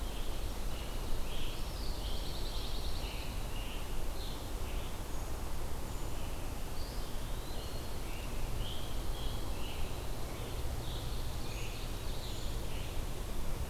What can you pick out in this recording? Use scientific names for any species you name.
Piranga olivacea, Setophaga pinus, Contopus virens, Seiurus aurocapilla, Certhia americana